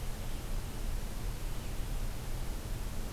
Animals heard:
forest ambience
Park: Acadia National Park